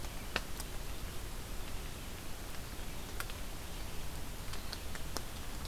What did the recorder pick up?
forest ambience